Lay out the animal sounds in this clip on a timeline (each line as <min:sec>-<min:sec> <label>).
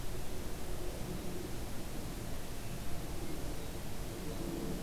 0:03.2-0:03.9 Hermit Thrush (Catharus guttatus)